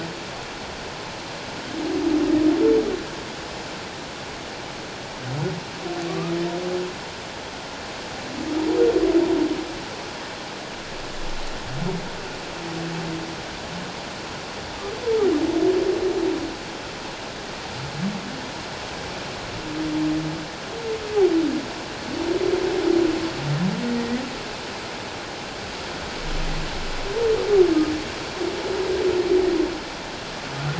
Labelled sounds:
6.1	6.3	humpback whale, 1.1 to 1.3 kHz
24.0	24.2	humpback whale, 1.8 to 2.0 kHz

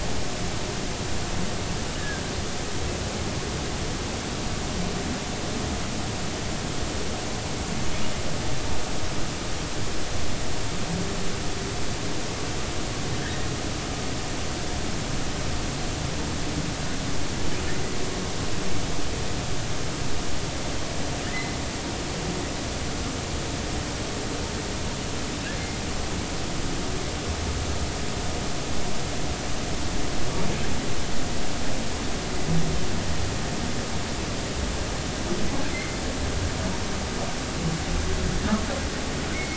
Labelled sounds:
2.0	2.2	humpback whale, 1.5 to 1.9 kHz
13.2	13.5	humpback whale, 1.5 to 1.9 kHz
21.3	21.6	humpback whale, 1.7 to 2.1 kHz
35.7	36.0	humpback whale, 2.0 to 2.2 kHz
39.3	39.5	humpback whale, 2.0 to 2.4 kHz

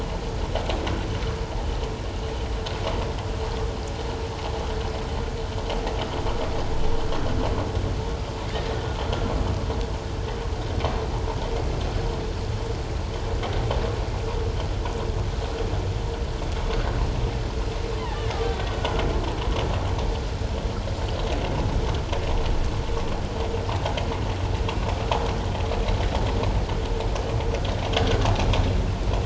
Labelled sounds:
18.0	18.3	killer whale, Bigg's (transient), 1.7 to 2.0 kHz

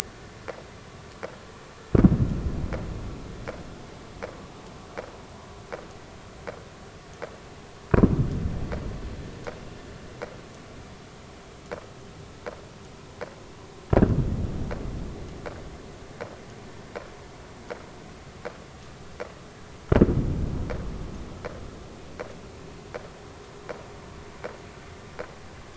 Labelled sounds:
0.0	0.3	vessel noise, 1.4 to 1.5 kHz

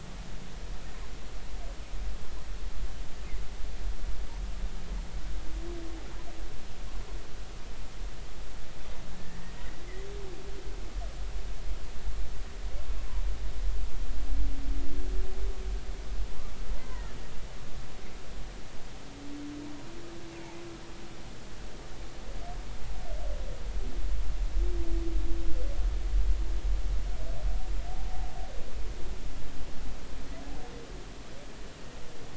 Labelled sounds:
9.1	9.4	humpback whale, 1.6 to 1.9 kHz
16.9	17.2	humpback whale, 1.7 to 2.1 kHz

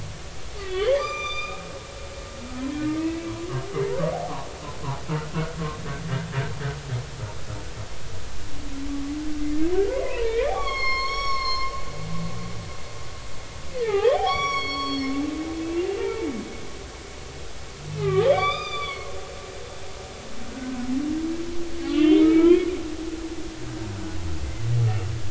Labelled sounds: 0.6	1.6	humpback whale, 1.1 to 7.3 kHz
3.0	3.3	humpback whale, 2.5 to 2.7 kHz
9.9	11.7	humpback whale, 0.86 to 6.7 kHz
13.8	16.3	humpback whale, 0.80 to 6.8 kHz
17.9	19.2	humpback whale, 0.99 to 5.1 kHz
20.5	20.8	humpback whale, 1.4 to 1.6 kHz
21.8	22.7	humpback whale, 0.90 to 3.2 kHz

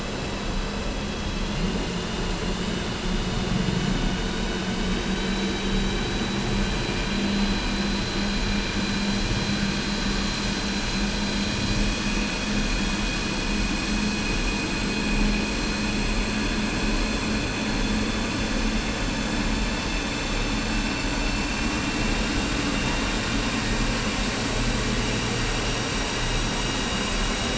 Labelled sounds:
2.5	4.0	vessel noise, 3.5 to 3.8 kHz
4.8	6.6	vessel noise, 3.7 to 4.0 kHz
7.2	7.7	vessel noise, 4.0 to 4.1 kHz
12.0	12.4	vessel noise, 4.1 to 4.3 kHz

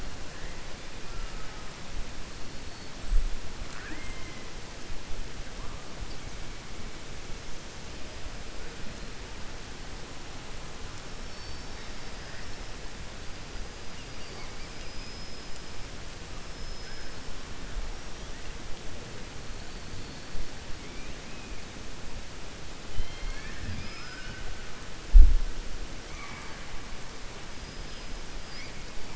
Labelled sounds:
11.2	12.6	killer whale, 3.7 to 5.5 kHz
14.1	15.5	killer whale, 4.4 to 5.7 kHz
16.4	17.2	killer whale, 4.3 to 5.4 kHz
23.6	24.3	killer whale, 4.4 to 5.4 kHz
26.0	26.6	killer whale, 0.89 to 2.4 kHz

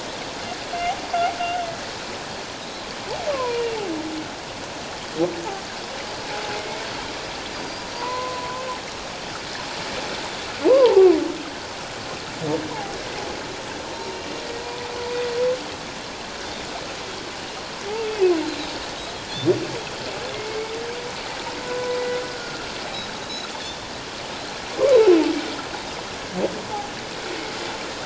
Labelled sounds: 3.3	3.8	humpback whale, 0.91 to 2.9 kHz
6.5	6.8	humpback whale, 2.1 to 2.2 kHz
8.0	8.7	humpback whale, 0.91 to 1.1 kHz
10.7	11.1	humpback whale, 0.78 to 1.2 kHz
17.9	18.4	humpback whale, 2.5 to 2.8 kHz
20.3	20.7	humpback whale, 2.1 to 2.3 kHz
21.6	22.0	humpback whale, 0.94 to 1.5 kHz
22.3	22.6	humpback whale, 1.3 to 1.5 kHz
22.8	23.5	Pacific white-sided dolphin, 3.8 to 4.1 kHz

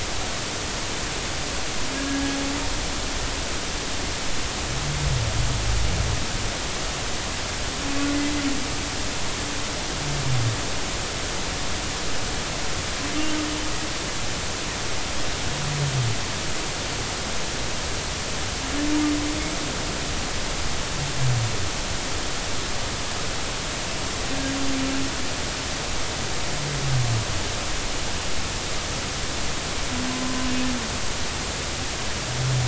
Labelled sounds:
2.1	2.4	humpback whale, 1.6 to 1.7 kHz

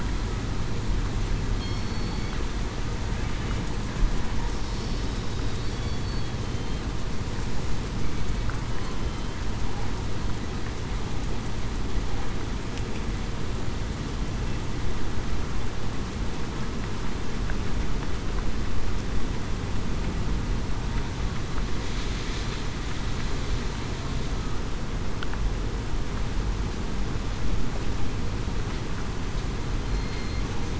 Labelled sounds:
1.6	2.3	killer whale, southern resident, 4.3 to 4.5 kHz
9.0	9.3	killer whale, southern resident, 3.07 to 3.14 kHz
29.8	30.4	killer whale, southern resident, 4.1 to 4.3 kHz

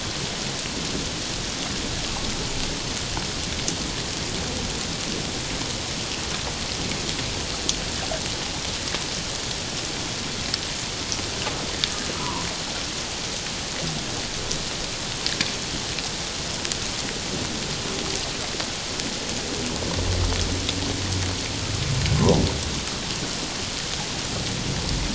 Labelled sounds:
12.1	12.5	humpback whale, 0.88 to 1.4 kHz

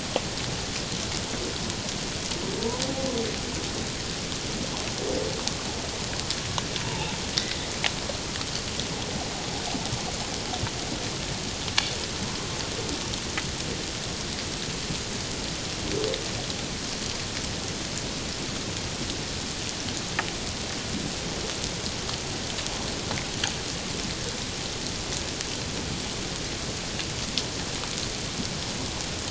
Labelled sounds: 6.8	7.1	humpback whale, 0.81 to 1.0 kHz

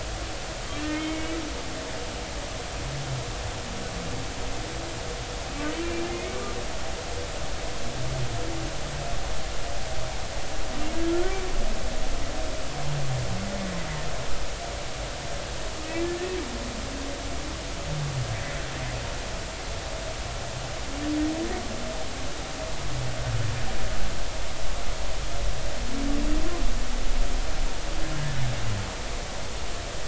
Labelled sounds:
0.6	1.4	humpback whale, 1.7 to 3.4 kHz
5.7	6.4	humpback whale, 2.1 to 2.4 kHz

